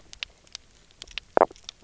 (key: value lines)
label: biophony, stridulation
recorder: SoundTrap 300